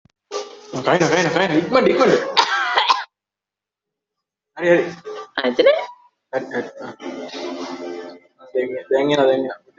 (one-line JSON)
{"expert_labels": [{"quality": "ok", "cough_type": "wet", "dyspnea": false, "wheezing": false, "stridor": false, "choking": false, "congestion": false, "nothing": true, "diagnosis": "lower respiratory tract infection", "severity": "mild"}]}